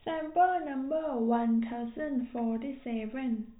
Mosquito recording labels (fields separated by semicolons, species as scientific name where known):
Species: no mosquito; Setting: cup